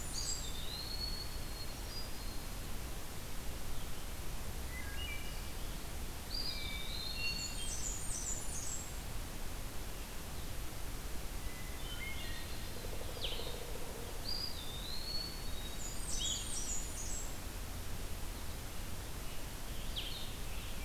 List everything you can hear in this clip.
Blackburnian Warbler, Eastern Wood-Pewee, Hermit Thrush, Wood Thrush, Pileated Woodpecker, Blue-headed Vireo, Scarlet Tanager